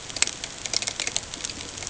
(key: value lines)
label: ambient
recorder: HydroMoth